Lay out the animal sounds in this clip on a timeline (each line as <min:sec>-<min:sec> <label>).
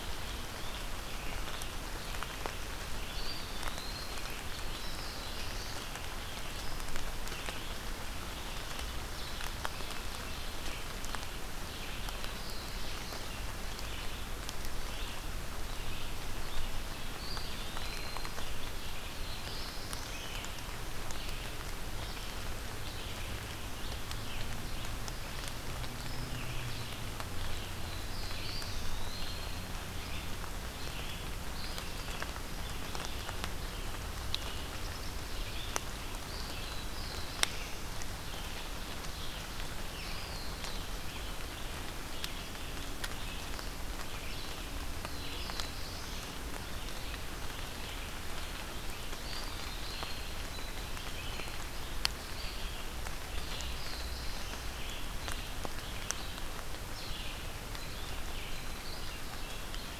0:00.0-0:12.0 Red-eyed Vireo (Vireo olivaceus)
0:03.1-0:04.3 Eastern Wood-Pewee (Contopus virens)
0:04.4-0:05.8 Black-throated Blue Warbler (Setophaga caerulescens)
0:12.0-0:13.2 Black-throated Blue Warbler (Setophaga caerulescens)
0:12.9-1:00.0 Red-eyed Vireo (Vireo olivaceus)
0:16.9-0:18.4 Eastern Wood-Pewee (Contopus virens)
0:18.9-0:20.4 Black-throated Blue Warbler (Setophaga caerulescens)
0:27.7-0:29.0 Black-throated Blue Warbler (Setophaga caerulescens)
0:28.3-0:29.4 Eastern Wood-Pewee (Contopus virens)
0:36.2-0:38.0 Black-throated Blue Warbler (Setophaga caerulescens)
0:39.9-0:40.8 Eastern Wood-Pewee (Contopus virens)
0:44.8-0:46.4 Black-throated Blue Warbler (Setophaga caerulescens)
0:49.0-0:50.4 Eastern Wood-Pewee (Contopus virens)
0:50.4-0:51.6 Hairy Woodpecker (Dryobates villosus)
0:53.2-0:54.7 Black-throated Blue Warbler (Setophaga caerulescens)
0:57.6-1:00.0 Hairy Woodpecker (Dryobates villosus)